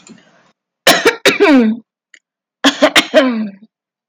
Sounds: Throat clearing